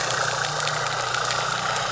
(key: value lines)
label: anthrophony, boat engine
recorder: SoundTrap 300